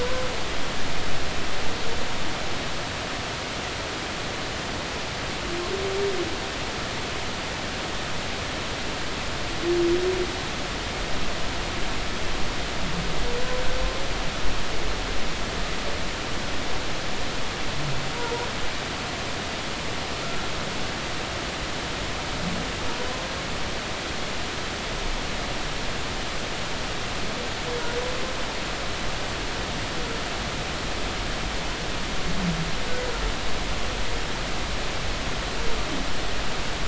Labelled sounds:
0.0	0.3	humpback whale, 0.96 to 1.1 kHz
18.1	18.5	humpback whale, 0.86 to 1.0 kHz

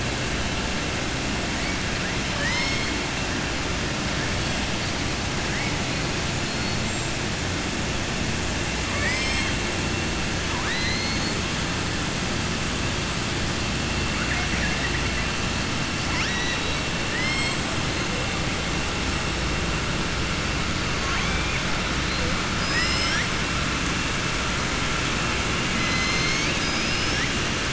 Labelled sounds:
2.3	2.9	killer whale, southern resident, 0.97 to 6.4 kHz
8.8	9.5	killer whale, southern resident, 0.60 to 6.3 kHz
16.0	17.6	killer whale, southern resident, 1.0 to 5.9 kHz
22.5	23.3	killer whale, southern resident, 1.3 to 7.7 kHz

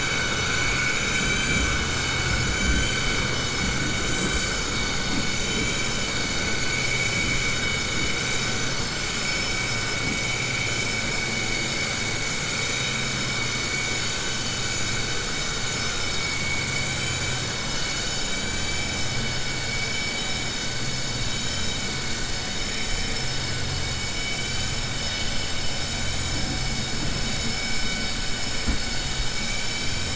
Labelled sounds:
0.5	1.7	vessel noise, 1.5 to 4.7 kHz

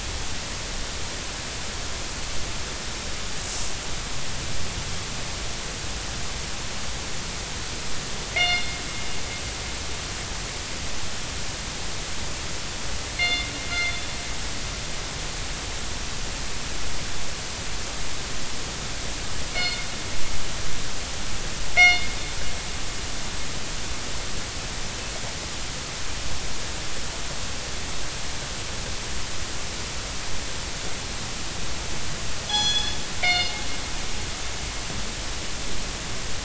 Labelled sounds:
8.3	8.8	killer whale, northern resident, G clan, call N24ii, 2.0 to 4.3 kHz
13.2	14.0	killer whale, northern resident, G clan, call N24ii, 2.0 to 4.3 kHz
19.5	19.9	killer whale, northern resident, G clan, call N24ii, 2.1 to 4.4 kHz
21.8	22.1	killer whale, northern resident, G clan, call N24ii, 1.9 to 4.4 kHz
32.5	33.5	killer whale, northern resident, G clan, call N24ii, 1.4 to 6.9 kHz

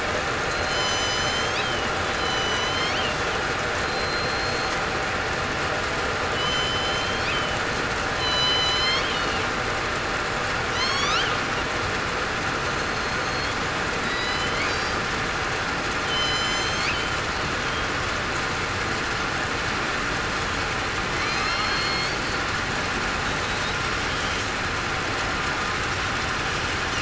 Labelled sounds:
0.5	1.4	killer whale, southern resident, 4.1 to 4.3 kHz
2.1	2.9	killer whale, southern resident, 2.9 to 6.4 kHz
3.8	4.7	killer whale, southern resident, 4.1 to 4.3 kHz
6.3	7.3	killer whale, southern resident, 2.9 to 7.2 kHz
8.2	9.1	killer whale, southern resident, 2.9 to 7.4 kHz
10.7	11.1	killer whale, southern resident, 1.9 to 6.8 kHz
13.2	13.5	killer whale, southern resident, 4.2 to 4.4 kHz
14.0	14.6	killer whale, southern resident, 1.9 to 5.1 kHz
16.0	16.8	killer whale, southern resident, 3.0 to 7.2 kHz
21.2	22.1	killer whale, southern resident, 2.1 to 4.4 kHz

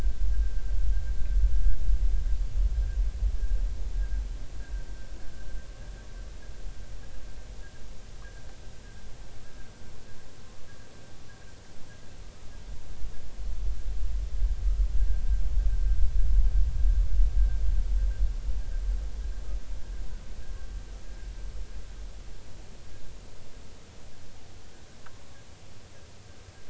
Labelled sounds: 15.0	15.2	humpback whale, 1.5 to 1.8 kHz

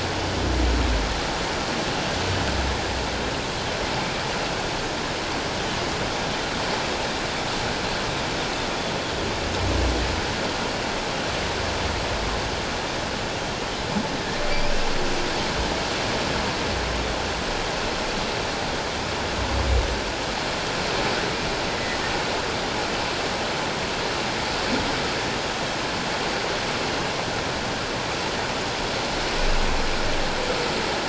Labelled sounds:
21.7	22.0	humpback whale, 1.9 to 2.1 kHz

